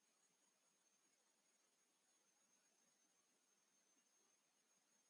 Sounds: Cough